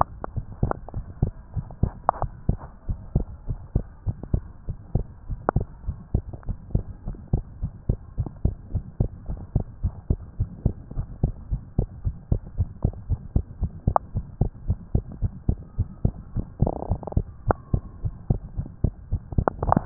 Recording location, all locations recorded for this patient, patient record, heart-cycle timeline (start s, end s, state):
tricuspid valve (TV)
aortic valve (AV)+pulmonary valve (PV)+tricuspid valve (TV)+mitral valve (MV)
#Age: Child
#Sex: Female
#Height: 121.0 cm
#Weight: 23.7 kg
#Pregnancy status: False
#Murmur: Present
#Murmur locations: aortic valve (AV)
#Most audible location: aortic valve (AV)
#Systolic murmur timing: Holosystolic
#Systolic murmur shape: Plateau
#Systolic murmur grading: I/VI
#Systolic murmur pitch: Low
#Systolic murmur quality: Blowing
#Diastolic murmur timing: nan
#Diastolic murmur shape: nan
#Diastolic murmur grading: nan
#Diastolic murmur pitch: nan
#Diastolic murmur quality: nan
#Outcome: Abnormal
#Campaign: 2015 screening campaign
0.00	2.60	unannotated
2.60	2.84	diastole
2.84	2.98	S1
2.98	3.12	systole
3.12	3.28	S2
3.28	3.48	diastole
3.48	3.60	S1
3.60	3.72	systole
3.72	3.86	S2
3.86	4.06	diastole
4.06	4.16	S1
4.16	4.30	systole
4.30	4.44	S2
4.44	4.68	diastole
4.68	4.76	S1
4.76	4.94	systole
4.94	5.08	S2
5.08	5.28	diastole
5.28	5.40	S1
5.40	5.54	systole
5.54	5.66	S2
5.66	5.86	diastole
5.86	5.98	S1
5.98	6.14	systole
6.14	6.28	S2
6.28	6.48	diastole
6.48	6.58	S1
6.58	6.72	systole
6.72	6.86	S2
6.86	7.06	diastole
7.06	7.18	S1
7.18	7.32	systole
7.32	7.44	S2
7.44	7.60	diastole
7.60	7.72	S1
7.72	7.88	systole
7.88	8.00	S2
8.00	8.18	diastole
8.18	8.30	S1
8.30	8.42	systole
8.42	8.56	S2
8.56	8.72	diastole
8.72	8.84	S1
8.84	8.96	systole
8.96	9.12	S2
9.12	9.28	diastole
9.28	9.40	S1
9.40	9.54	systole
9.54	9.64	S2
9.64	9.82	diastole
9.82	9.96	S1
9.96	10.10	systole
10.10	10.22	S2
10.22	10.38	diastole
10.38	10.50	S1
10.50	10.64	systole
10.64	10.74	S2
10.74	10.96	diastole
10.96	11.08	S1
11.08	11.22	systole
11.22	11.36	S2
11.36	11.50	diastole
11.50	11.62	S1
11.62	11.74	systole
11.74	11.90	S2
11.90	12.04	diastole
12.04	12.18	S1
12.18	12.28	systole
12.28	12.42	S2
12.42	12.56	diastole
12.56	12.70	S1
12.70	12.81	systole
12.81	12.96	S2
12.96	13.08	diastole
13.08	13.20	S1
13.20	13.30	systole
13.30	13.42	S2
13.42	13.60	diastole
13.60	13.74	S1
13.74	13.86	systole
13.86	13.96	S2
13.96	14.14	diastole
14.14	14.26	S1
14.26	14.39	systole
14.39	14.52	S2
14.52	14.66	diastole
14.66	14.78	S1
14.78	14.90	systole
14.90	15.04	S2
15.04	15.20	diastole
15.20	15.32	S1
15.32	15.44	systole
15.44	15.60	S2
15.60	15.78	diastole
15.78	15.88	S1
15.88	16.02	systole
16.02	16.16	S2
16.16	16.34	diastole
16.34	19.86	unannotated